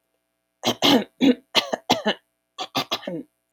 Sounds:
Throat clearing